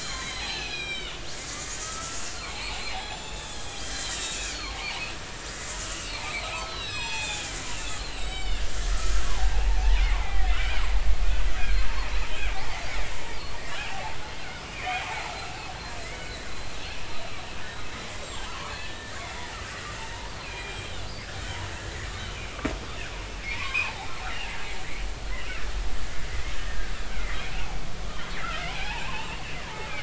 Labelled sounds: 0.0	4.9	killer whale, Bigg's (transient), 0.80 to 7.9 kHz
5.9	7.5	killer whale, Bigg's (transient), 0.80 to 7.9 kHz
7.9	8.6	killer whale, Bigg's (transient), 2.1 to 8.0 kHz
9.2	10.5	killer whale, Bigg's (transient), 0.80 to 2.4 kHz
11.6	11.8	killer whale, Bigg's (transient), 1.5 to 1.7 kHz
13.3	15.1	killer whale, Bigg's (transient), 0.80 to 3.4 kHz
15.4	15.7	killer whale, Bigg's (transient), 2.5 to 2.8 kHz
16.0	16.3	killer whale, Bigg's (transient), 1.9 to 2.3 kHz
18.2	19.2	killer whale, Bigg's (transient), 0.90 to 7.6 kHz
20.4	21.0	killer whale, Bigg's (transient), 2.3 to 3.3 kHz
22.1	22.6	killer whale, Bigg's (transient), 2.2 to 3.9 kHz
23.4	24.1	killer whale, Bigg's (transient), 0.80 to 2.7 kHz
26.3	27.4	killer whale, Bigg's (transient), 1.8 to 2.3 kHz
28.7	29.9	killer whale, Bigg's (transient), 0.80 to 3.0 kHz

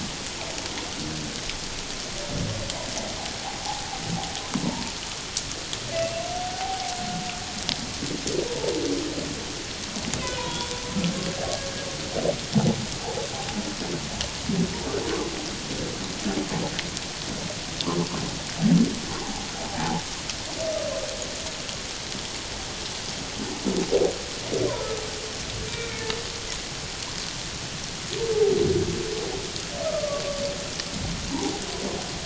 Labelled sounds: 5.9	6.9	humpback whale, 0.78 to 2.8 kHz
10.2	10.7	humpback whale, 0.91 to 3.5 kHz
19.2	20.0	humpback whale, 0.78 to 1.0 kHz
25.7	26.1	humpback whale, 1.4 to 2.4 kHz
29.8	30.2	humpback whale, 1.1 to 1.3 kHz

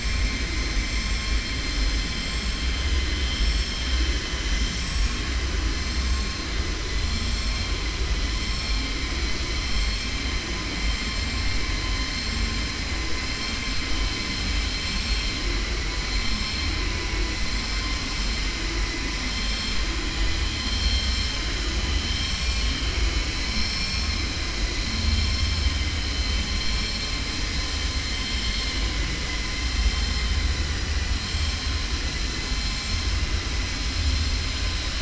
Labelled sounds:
2.8	3.8	vessel noise, 2.4 to 5.6 kHz
20.4	21.3	vessel noise, 2.3 to 4.5 kHz

